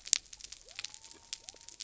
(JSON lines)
{"label": "biophony", "recorder": "SoundTrap 300"}